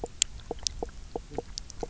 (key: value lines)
label: biophony, knock croak
recorder: SoundTrap 300